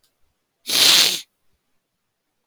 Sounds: Sniff